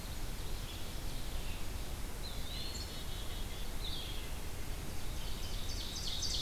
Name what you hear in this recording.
Ovenbird, Red-eyed Vireo, Eastern Wood-Pewee, Black-capped Chickadee